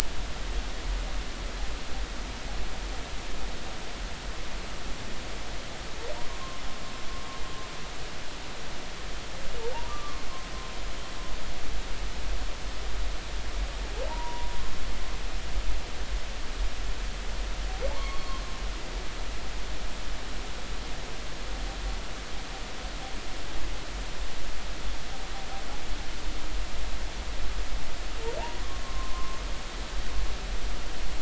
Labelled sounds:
6.2	6.6	humpback whale, 0.86 to 1.1 kHz
9.9	10.2	humpback whale, 1.1 to 1.3 kHz
14.1	14.6	humpback whale, 0.83 to 1.1 kHz
17.9	18.4	humpback whale, 0.80 to 4.4 kHz
28.4	29.4	humpback whale, 0.80 to 1.2 kHz

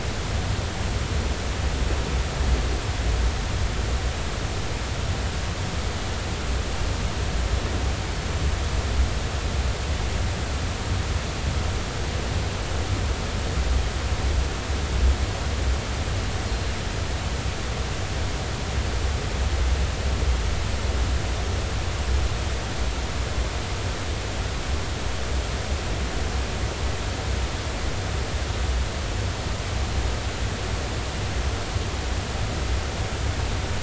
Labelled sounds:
16.5	16.7	killer whale, northern resident, 4.1 to 4.3 kHz

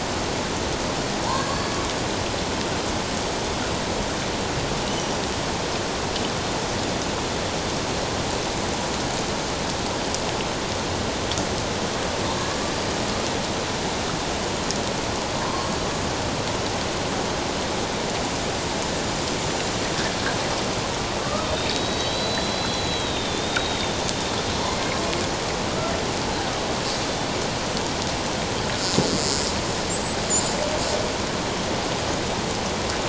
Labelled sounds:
1.3	1.7	killer whale, Bigg's (transient), 0.78 to 7.3 kHz
15.4	15.7	killer whale, Bigg's (transient), 0.97 to 1.1 kHz
21.2	24.1	killer whale, Bigg's (transient), 1.1 to 4.1 kHz
29.9	30.6	killer whale, Bigg's (transient), 6.8 to 8.0 kHz

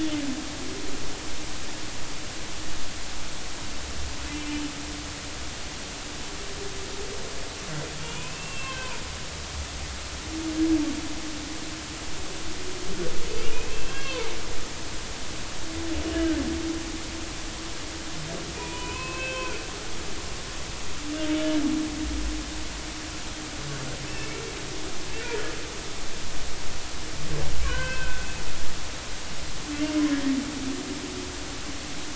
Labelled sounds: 8.0	9.0	humpback whale, 2.3 to 3.2 kHz
13.3	14.3	humpback whale, 0.83 to 2.9 kHz
14.7	16.4	humpback whale, 1.5 to 3.3 kHz
18.5	19.6	humpback whale, 0.90 to 3.2 kHz
21.3	21.6	humpback whale, 2.8 to 3.0 kHz
24.1	24.3	humpback whale, 2.6 to 2.8 kHz
27.6	28.3	humpback whale, 0.96 to 3.2 kHz

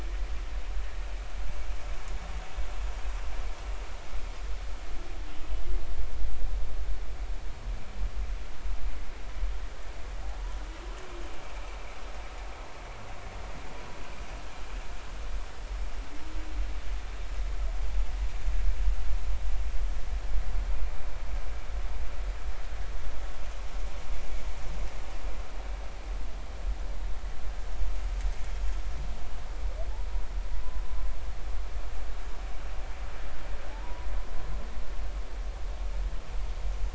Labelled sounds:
33.7	34.1	humpback whale, 0.80 to 1.0 kHz

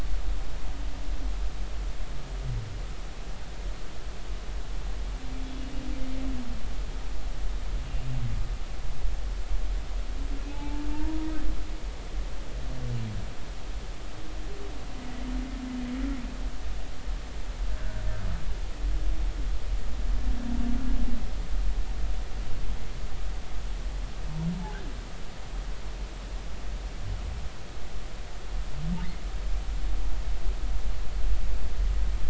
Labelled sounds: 10.5	11.3	humpback whale, 0.80 to 0.99 kHz

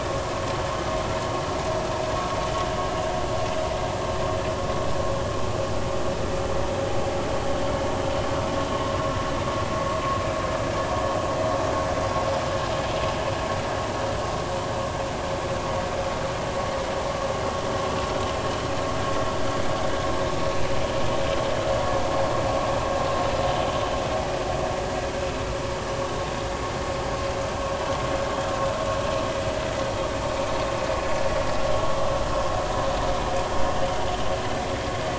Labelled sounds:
8.7	9.0	vessel noise, 0.96 to 1.1 kHz

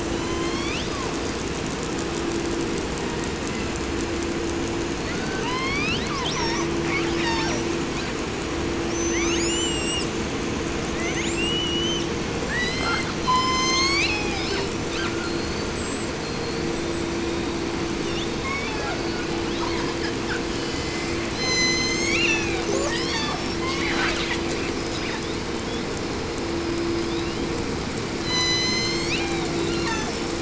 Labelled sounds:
0.0	1.6	killer whale, southern resident, 0.58 to 8.0 kHz
2.8	3.8	killer whale, southern resident, J pod, call S01, 0.73 to 5.3 kHz
4.9	7.8	killer whale, southern resident, 0.52 to 8.0 kHz
8.8	10.2	killer whale, 0.58 to 8.0 kHz
10.8	12.1	killer whale, 0.78 to 8.0 kHz
12.4	15.2	killer whale, southern resident, 0.51 to 8.0 kHz
15.2	17.7	killer whale, southern resident, J pod, call S42, 0.83 to 8.0 kHz
17.9	19.3	killer whale, southern resident, call S36, 0.52 to 7.5 kHz
19.4	20.5	killer whale, southern resident, 0.55 to 7.5 kHz
20.5	22.6	killer whale, southern resident, J pod, call S01, 0.41 to 8.0 kHz
22.6	23.6	killer whale, 0.47 to 8.0 kHz
23.5	24.6	killer whale, southern resident, J pod, call S01 and call S10, 0.51 to 7.8 kHz
24.6	26.0	killer whale, 0.59 to 8.0 kHz
26.5	27.7	killer whale, 1.4 to 6.1 kHz
28.1	29.6	killer whale, southern resident, J pod, call S01, 0.57 to 8.0 kHz
29.6	30.3	killer whale, 0.65 to 7.2 kHz

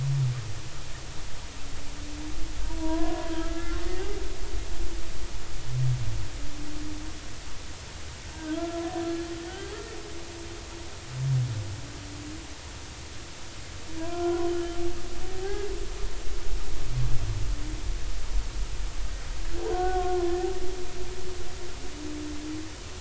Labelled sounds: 2.7	3.8	humpback whale, 0.90 to 2.1 kHz
9.5	9.8	humpback whale, 1.3 to 1.6 kHz
14.0	14.5	humpback whale, 0.93 to 1.5 kHz
15.4	15.7	humpback whale, 0.80 to 1.7 kHz
19.6	20.5	humpback whale, 0.80 to 1.9 kHz

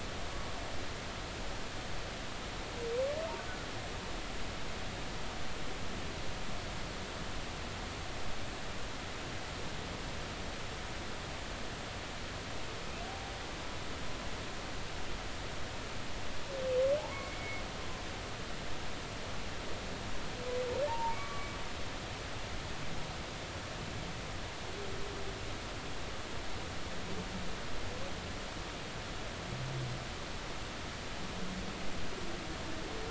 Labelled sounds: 17.0	17.6	humpback whale, 0.80 to 2.3 kHz
20.9	21.5	humpback whale, 0.83 to 1.2 kHz

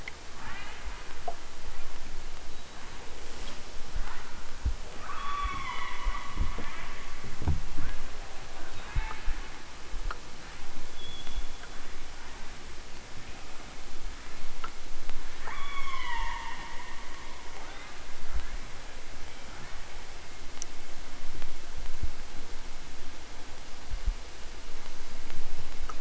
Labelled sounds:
0.3	0.9	killer whale, southern Alaska resident, 0.51 to 4.5 kHz
5.0	6.0	killer whale, southern Alaska resident, 0.41 to 6.1 kHz
6.5	7.1	killer whale, southern Alaska resident, 0.46 to 3.6 kHz
8.6	9.3	killer whale, southern Alaska resident, 0.46 to 4.1 kHz
15.4	16.6	killer whale, southern Alaska resident, 0.41 to 6.9 kHz
17.6	18.8	killer whale, southern Alaska resident, 0.60 to 4.1 kHz
19.5	19.9	killer whale, southern Alaska resident, 0.78 to 3.2 kHz

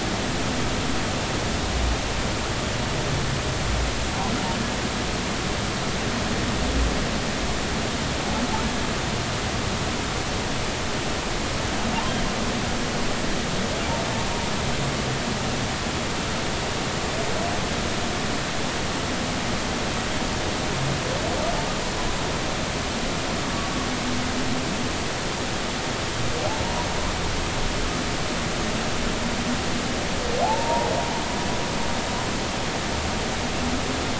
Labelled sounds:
30.4	30.9	humpback whale, 0.80 to 0.99 kHz

